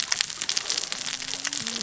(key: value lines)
label: biophony, cascading saw
recorder: SoundTrap 600 or HydroMoth